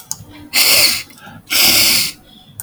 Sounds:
Sniff